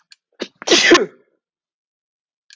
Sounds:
Sneeze